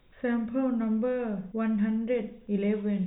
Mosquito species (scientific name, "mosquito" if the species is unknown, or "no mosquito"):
no mosquito